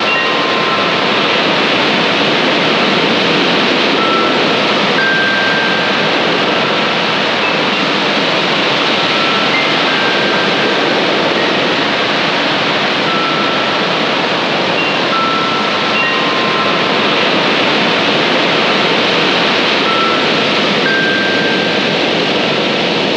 Is it dry outside?
no